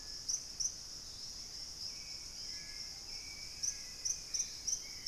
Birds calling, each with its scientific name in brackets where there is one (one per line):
Hauxwell's Thrush (Turdus hauxwelli)
White-throated Woodpecker (Piculus leucolaemus)
Screaming Piha (Lipaugus vociferans)